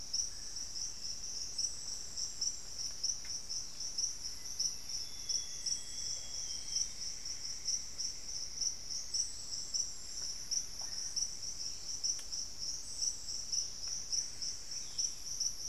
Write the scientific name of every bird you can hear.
Formicarius analis, Cyanoloxia rothschildii, Dendrexetastes rufigula, Campylorhynchus turdinus, Cantorchilus leucotis